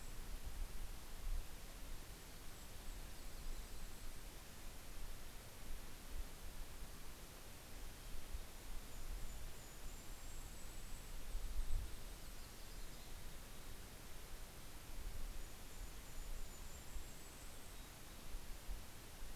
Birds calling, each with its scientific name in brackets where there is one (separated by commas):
White-crowned Sparrow (Zonotrichia leucophrys), Golden-crowned Kinglet (Regulus satrapa), Mountain Chickadee (Poecile gambeli), Yellow-rumped Warbler (Setophaga coronata)